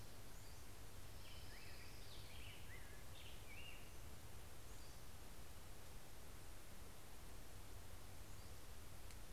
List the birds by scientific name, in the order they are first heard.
Pheucticus melanocephalus, Leiothlypis celata, Empidonax difficilis